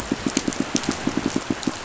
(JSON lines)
{"label": "biophony, pulse", "recorder": "SoundTrap 500"}